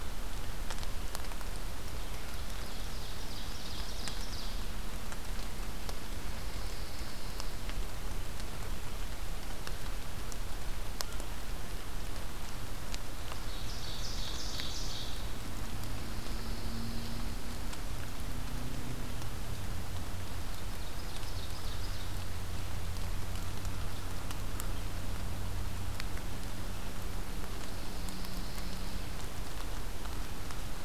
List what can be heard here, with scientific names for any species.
Seiurus aurocapilla, Setophaga pinus